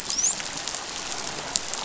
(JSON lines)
{"label": "biophony, dolphin", "recorder": "SoundTrap 500"}